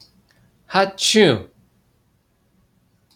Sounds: Sneeze